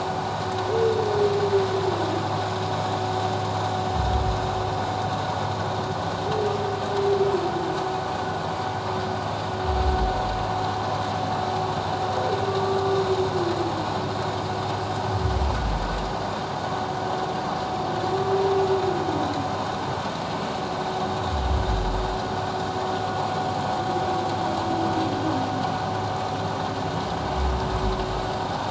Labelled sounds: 12.5	12.8	humpback whale, 1.1 to 1.3 kHz

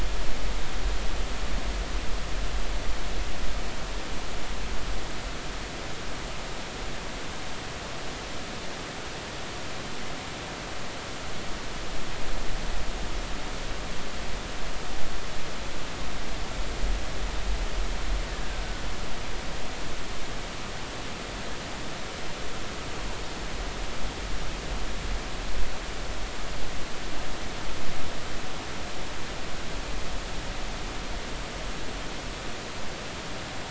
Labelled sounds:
18.3	18.6	killer whale, Bigg's (transient), 1.5 to 1.9 kHz

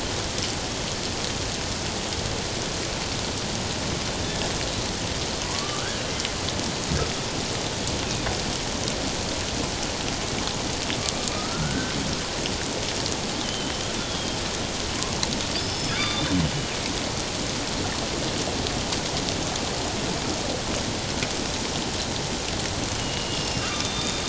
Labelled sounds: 5.4	6.1	killer whale, northern resident, G clan, 0.97 to 1.8 kHz
11.3	11.9	killer whale, northern resident, G clan, 1.2 to 1.6 kHz
13.4	14.4	killer whale, northern resident, G clan, 2.9 to 3.6 kHz
15.6	16.3	killer whale, northern resident, G clan, 1.1 to 5.3 kHz
23.0	24.2	killer whale, northern resident, G clan, 1.2 to 5.4 kHz

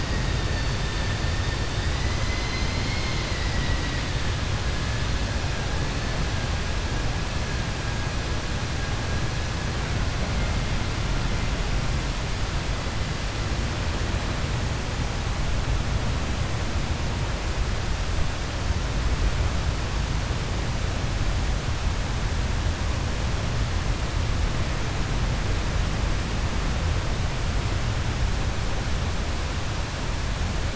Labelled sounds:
2.2	4.0	vessel noise, 1.5 to 5.1 kHz

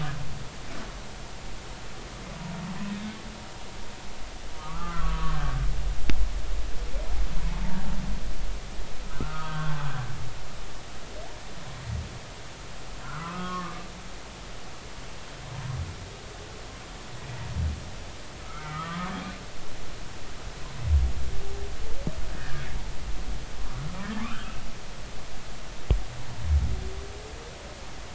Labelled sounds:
4.5	5.4	humpback whale, 0.96 to 1.4 kHz
9.2	9.9	humpback whale, 0.96 to 1.6 kHz
13.0	13.9	humpback whale, 0.96 to 1.6 kHz
18.4	19.2	humpback whale, 0.96 to 1.6 kHz
22.4	22.6	humpback whale, 1.5 to 1.9 kHz
24.2	24.6	humpback whale, 1.1 to 1.7 kHz

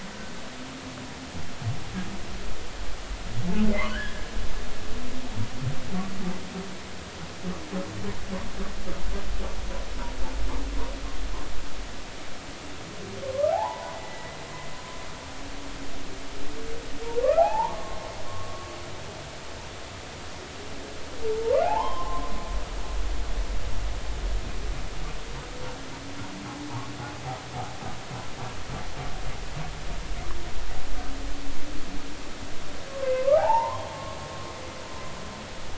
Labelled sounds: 3.9	4.3	humpback whale, 1.4 to 1.9 kHz
13.5	14.4	humpback whale, 0.80 to 2.0 kHz
17.2	18.7	humpback whale, 0.80 to 1.4 kHz
21.6	22.3	humpback whale, 0.80 to 3.2 kHz
32.9	33.9	humpback whale, 0.80 to 1.3 kHz

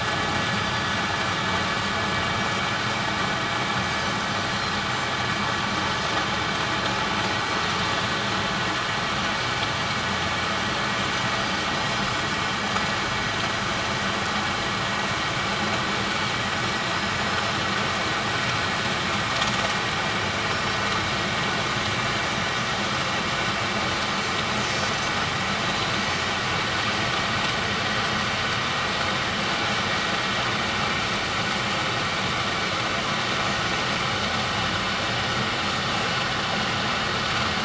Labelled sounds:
11.4	11.6	Pacific white-sided dolphin, 4.6 to 4.8 kHz
16.1	16.3	Pacific white-sided dolphin, 4.3 to 4.5 kHz
24.6	25.1	Pacific white-sided dolphin, 4.6 to 6.9 kHz
25.9	26.2	Pacific white-sided dolphin, 6.1 to 6.3 kHz

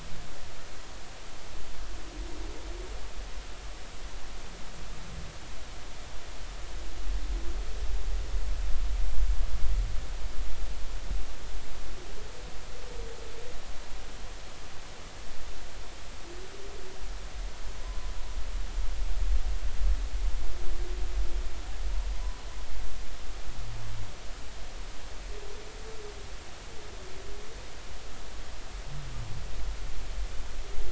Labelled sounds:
17.8	18.1	humpback whale, 0.96 to 1.1 kHz
22.1	22.4	humpback whale, 0.96 to 1.1 kHz

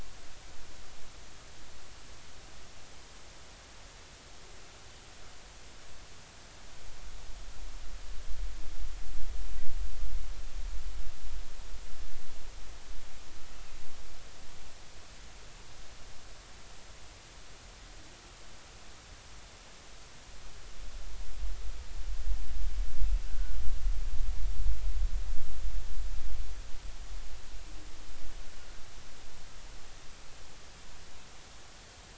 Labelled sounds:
23.3	23.6	humpback whale, 1.4 to 1.6 kHz

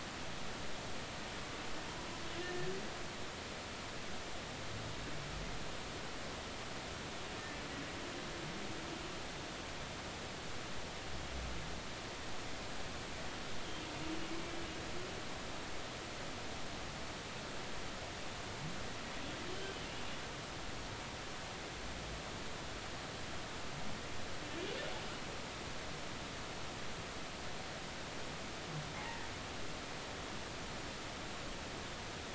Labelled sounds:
29.0	29.3	humpback whale, 1.7 to 2.0 kHz

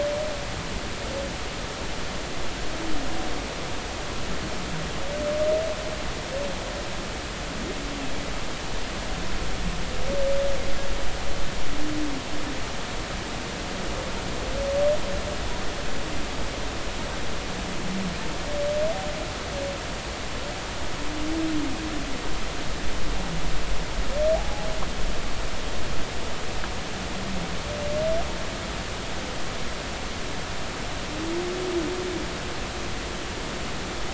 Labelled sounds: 24.3	24.7	humpback whale, 0.80 to 0.90 kHz

